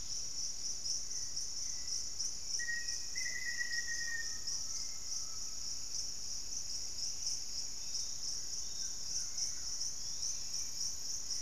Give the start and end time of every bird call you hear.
[0.00, 4.02] Hauxwell's Thrush (Turdus hauxwelli)
[2.32, 4.72] Black-faced Antthrush (Formicarius analis)
[3.82, 5.72] Undulated Tinamou (Crypturellus undulatus)
[5.72, 8.02] Pygmy Antwren (Myrmotherula brachyura)
[7.72, 10.82] Yellow-margined Flycatcher (Tolmomyias assimilis)
[8.62, 9.92] Collared Trogon (Trogon collaris)
[9.82, 11.42] Hauxwell's Thrush (Turdus hauxwelli)

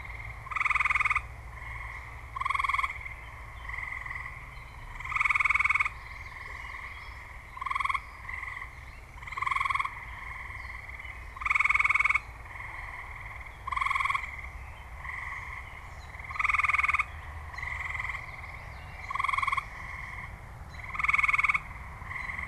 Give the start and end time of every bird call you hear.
[0.00, 5.07] Gray Catbird (Dumetella carolinensis)
[5.57, 7.27] Common Yellowthroat (Geothlypis trichas)
[7.47, 15.77] Gray Catbird (Dumetella carolinensis)
[15.77, 22.47] American Robin (Turdus migratorius)
[16.97, 19.57] Common Yellowthroat (Geothlypis trichas)

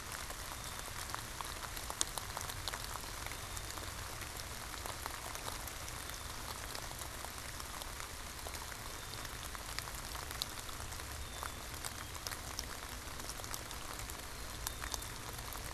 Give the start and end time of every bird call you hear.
[0.00, 15.66] Black-capped Chickadee (Poecile atricapillus)

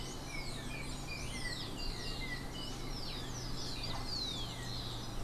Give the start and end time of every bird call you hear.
[0.00, 3.24] Yellow-backed Oriole (Icterus chrysater)

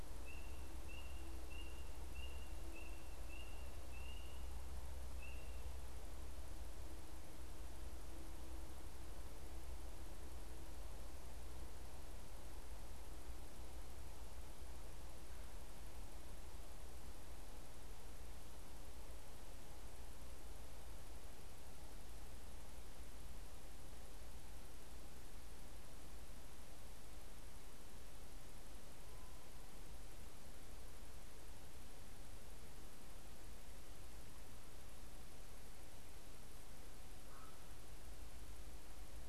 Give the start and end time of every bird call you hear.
[37.14, 37.64] Canada Goose (Branta canadensis)

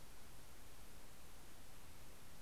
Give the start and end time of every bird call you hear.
[0.00, 0.88] Orange-crowned Warbler (Leiothlypis celata)

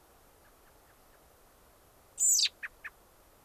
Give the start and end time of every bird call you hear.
[0.35, 1.25] American Robin (Turdus migratorius)
[2.15, 2.95] American Robin (Turdus migratorius)

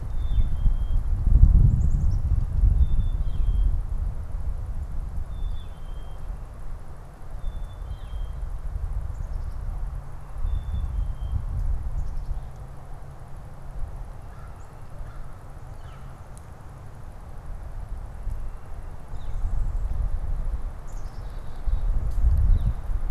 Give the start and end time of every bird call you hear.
[0.00, 3.80] Black-capped Chickadee (Poecile atricapillus)
[0.20, 0.60] Northern Flicker (Colaptes auratus)
[3.10, 3.60] Northern Flicker (Colaptes auratus)
[5.10, 6.30] Black-capped Chickadee (Poecile atricapillus)
[5.30, 5.90] Northern Flicker (Colaptes auratus)
[7.20, 8.50] Black-capped Chickadee (Poecile atricapillus)
[7.80, 8.30] Northern Flicker (Colaptes auratus)
[8.90, 12.90] Black-capped Chickadee (Poecile atricapillus)
[14.10, 16.30] American Crow (Corvus brachyrhynchos)
[15.60, 16.10] Northern Flicker (Colaptes auratus)
[19.00, 19.50] Northern Flicker (Colaptes auratus)
[20.60, 22.00] Black-capped Chickadee (Poecile atricapillus)
[22.30, 22.80] Northern Flicker (Colaptes auratus)

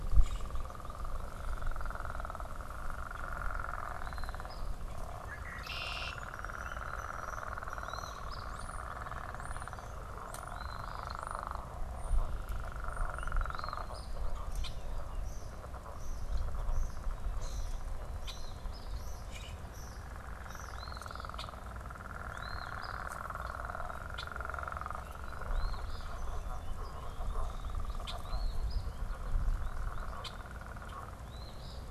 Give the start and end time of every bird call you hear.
[0.00, 0.68] Common Grackle (Quiscalus quiscula)
[3.98, 4.68] Eastern Phoebe (Sayornis phoebe)
[5.18, 6.28] Red-winged Blackbird (Agelaius phoeniceus)
[5.68, 20.98] European Starling (Sturnus vulgaris)
[7.68, 8.58] Eastern Phoebe (Sayornis phoebe)
[10.38, 11.18] Eastern Phoebe (Sayornis phoebe)
[13.38, 14.18] Eastern Phoebe (Sayornis phoebe)
[14.58, 14.78] unidentified bird
[18.08, 18.98] Eastern Phoebe (Sayornis phoebe)
[19.18, 19.68] Common Grackle (Quiscalus quiscula)
[20.58, 21.38] Eastern Phoebe (Sayornis phoebe)
[21.28, 21.58] unidentified bird
[22.18, 22.98] Eastern Phoebe (Sayornis phoebe)
[23.98, 24.38] unidentified bird
[25.38, 26.18] Eastern Phoebe (Sayornis phoebe)
[27.98, 28.18] unidentified bird
[28.18, 28.88] Eastern Phoebe (Sayornis phoebe)
[30.18, 30.38] unidentified bird
[31.08, 31.88] Eastern Phoebe (Sayornis phoebe)

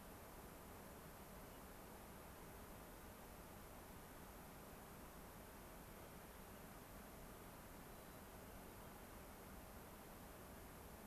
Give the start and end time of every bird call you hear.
[1.44, 1.64] unidentified bird
[7.84, 8.94] White-crowned Sparrow (Zonotrichia leucophrys)

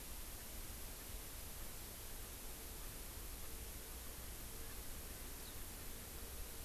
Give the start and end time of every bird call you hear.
[4.51, 6.21] Erckel's Francolin (Pternistis erckelii)

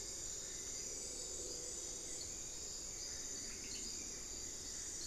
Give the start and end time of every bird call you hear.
[0.00, 5.06] Hauxwell's Thrush (Turdus hauxwelli)
[3.42, 3.92] unidentified bird

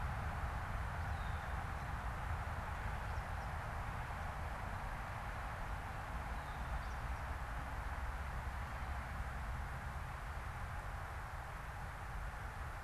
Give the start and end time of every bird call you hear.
[0.94, 1.54] Red-winged Blackbird (Agelaius phoeniceus)

